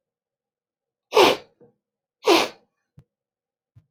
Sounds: Sniff